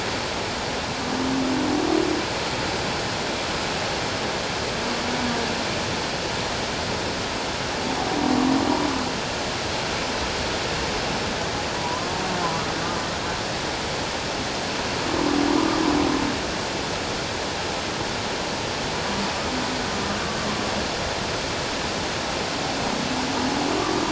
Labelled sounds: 11.8	12.1	humpback whale, 0.91 to 1.1 kHz
15.5	15.8	humpback whale, 1.1 to 1.3 kHz
23.8	24.0	humpback whale, 1.1 to 1.2 kHz

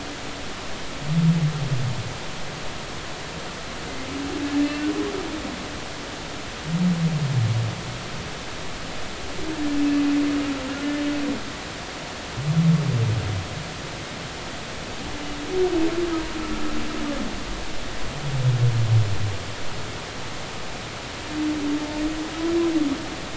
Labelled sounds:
4.6	4.9	humpback whale, 2.6 to 2.8 kHz

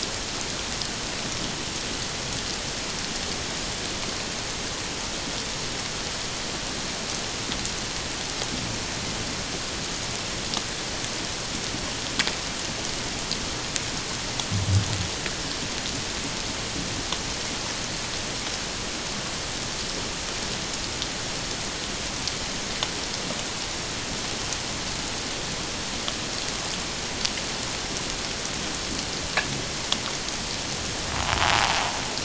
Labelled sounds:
31.5	31.8	invertebrate grinding on or near the hydrophone, 0.78 to 1.0 kHz

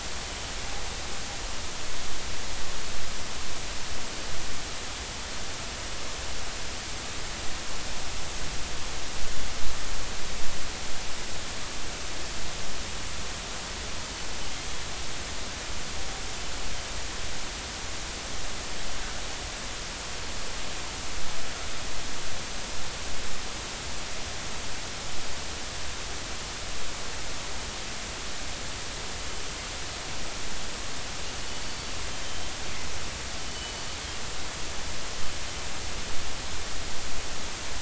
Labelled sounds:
31.5	31.9	killer whale, northern resident, G clan, GG subclan, 4.4 to 4.6 kHz
33.5	33.8	killer whale, northern resident, G clan, GG subclan, 2.9 to 3.1 kHz

